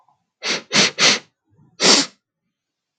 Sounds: Sniff